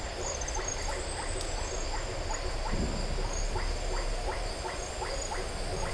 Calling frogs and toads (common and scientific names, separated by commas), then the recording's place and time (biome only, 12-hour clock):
blacksmith tree frog (Boana faber), Iporanga white-lipped frog (Leptodactylus notoaktites)
Atlantic Forest, 6:30pm